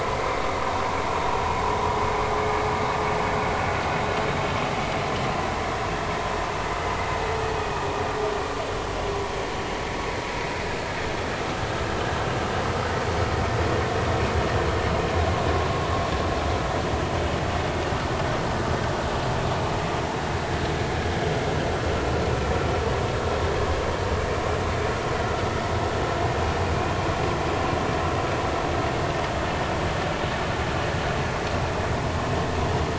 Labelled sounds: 7.5	7.8	vessel noise, 2.4 to 2.6 kHz

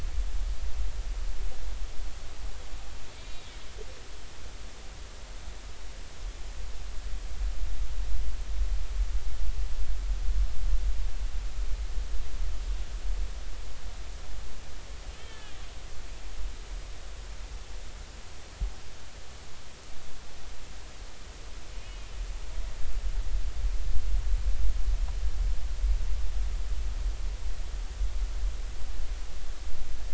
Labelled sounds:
3.2	3.6	killer whale, northern resident, A clan, call N03, 2.2 to 3.9 kHz
15.2	15.6	killer whale, northern resident, A clan, call N03, 1.6 to 3.6 kHz
21.7	22.1	killer whale, northern resident, A clan, call N03, 2.3 to 3.0 kHz

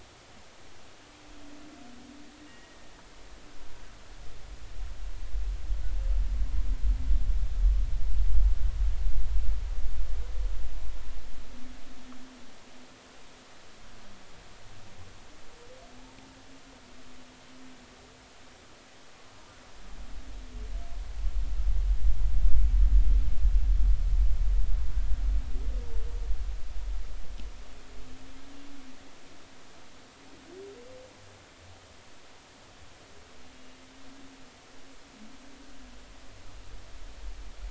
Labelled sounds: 2.4	2.9	humpback whale, 1.8 to 2.9 kHz

